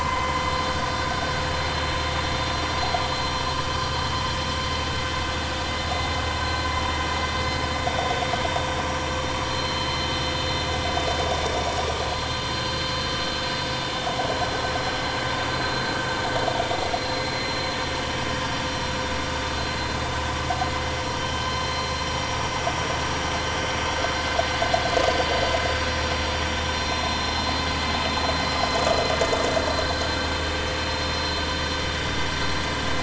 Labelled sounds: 9.4	10.0	vessel noise, 4.1 to 4.2 kHz
12.3	13.0	vessel noise, 4.1 to 4.9 kHz
21.2	21.5	vessel noise, 3.0 to 3.2 kHz

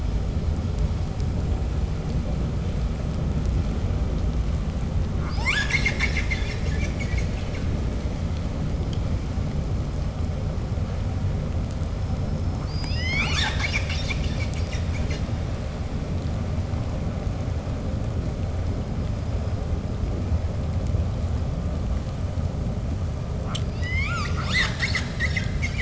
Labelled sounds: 5.1	7.7	killer whale, 0.49 to 8.0 kHz
12.6	15.3	killer whale, 0.32 to 8.0 kHz
23.4	25.7	killer whale, 0.46 to 8.0 kHz

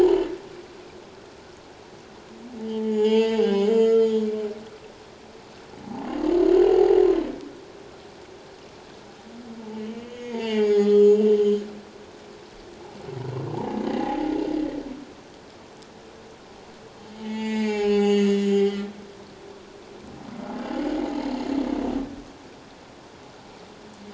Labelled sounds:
2.7	4.3	humpback whale, 0.78 to 7.2 kHz
6.4	7.0	humpback whale, 0.78 to 4.3 kHz
9.7	11.6	humpback whale, 0.81 to 7.1 kHz
13.5	14.3	humpback whale, 0.78 to 2.1 kHz
17.2	18.9	humpback whale, 0.78 to 7.2 kHz

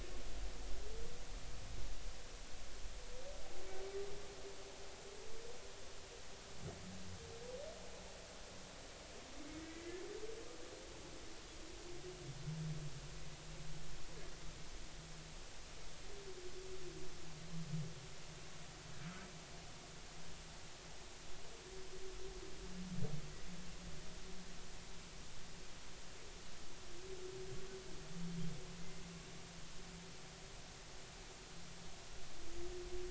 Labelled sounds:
9.4	10.0	humpback whale, 1.9 to 2.2 kHz

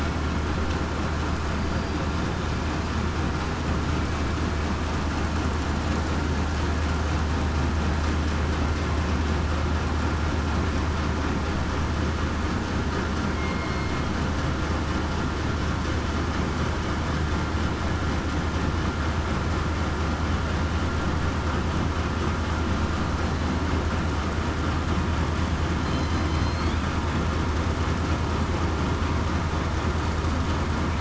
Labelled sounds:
1.6	2.0	killer whale, southern resident, 4.7 to 4.8 kHz
13.3	13.9	killer whale, southern resident, 2.1 to 2.2 kHz
26.3	26.7	killer whale, southern resident, 4.1 to 4.5 kHz

